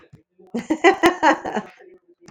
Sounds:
Laughter